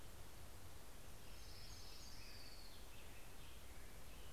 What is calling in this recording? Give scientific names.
Leiothlypis celata